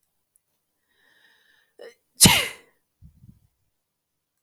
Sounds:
Sneeze